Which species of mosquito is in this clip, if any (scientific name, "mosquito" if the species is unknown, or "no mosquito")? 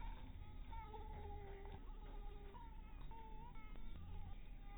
Anopheles dirus